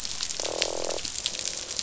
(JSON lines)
{"label": "biophony, croak", "recorder": "SoundTrap 500"}